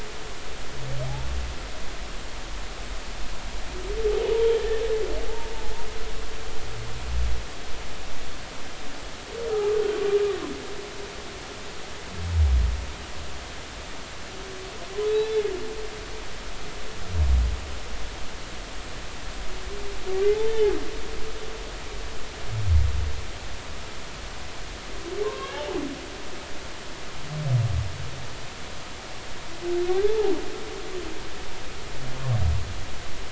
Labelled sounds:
4.3	4.6	humpback whale, 0.86 to 0.99 kHz
9.5	9.8	humpback whale, 1.2 to 1.3 kHz
20.3	20.8	humpback whale, 0.80 to 3.6 kHz
25.2	25.8	humpback whale, 0.80 to 3.0 kHz
29.9	30.3	humpback whale, 0.80 to 3.6 kHz

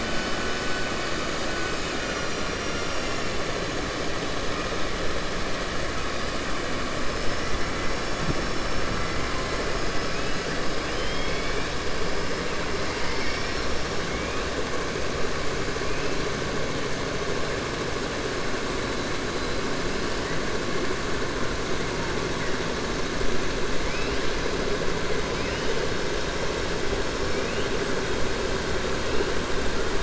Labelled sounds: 10.6	11.7	killer whale, 2.1 to 5.5 kHz

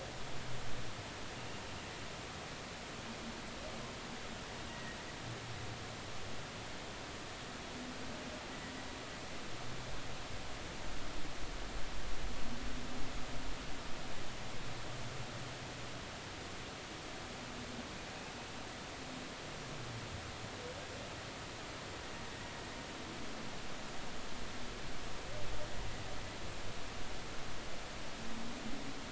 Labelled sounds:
4.7	5.0	humpback whale, 1.8 to 2.0 kHz

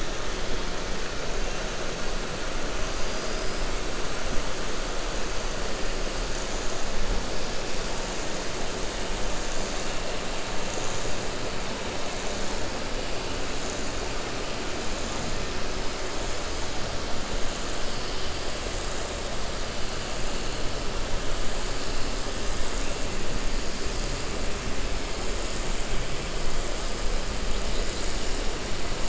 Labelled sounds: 3.0	3.6	killer whale, 4.6 to 5.5 kHz

